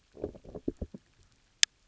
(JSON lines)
{"label": "biophony, low growl", "recorder": "SoundTrap 300"}